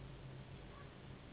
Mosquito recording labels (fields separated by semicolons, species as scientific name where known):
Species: Anopheles gambiae s.s.; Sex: female; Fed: unfed; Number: one; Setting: insect culture